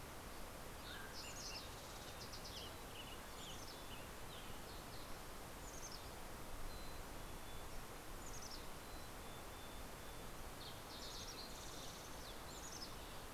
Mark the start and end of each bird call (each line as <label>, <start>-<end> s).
Mountain Quail (Oreortyx pictus), 0.0-2.2 s
Fox Sparrow (Passerella iliaca), 0.2-5.2 s
Western Tanager (Piranga ludoviciana), 0.3-4.9 s
Mountain Chickadee (Poecile gambeli), 1.8-4.4 s
Mountain Chickadee (Poecile gambeli), 5.4-10.3 s
Fox Sparrow (Passerella iliaca), 9.3-12.9 s
Mountain Chickadee (Poecile gambeli), 11.9-13.3 s
Western Tanager (Piranga ludoviciana), 12.4-13.3 s